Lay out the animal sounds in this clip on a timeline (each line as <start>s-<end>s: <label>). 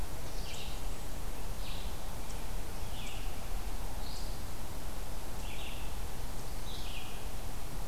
0.0s-7.9s: Red-eyed Vireo (Vireo olivaceus)